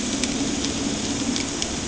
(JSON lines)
{"label": "anthrophony, boat engine", "recorder": "HydroMoth"}